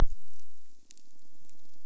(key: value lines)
label: biophony, squirrelfish (Holocentrus)
recorder: SoundTrap 300